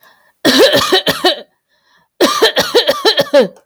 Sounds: Throat clearing